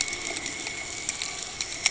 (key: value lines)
label: ambient
recorder: HydroMoth